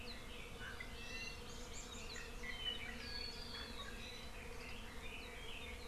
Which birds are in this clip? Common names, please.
Iiwi, Red-billed Leiothrix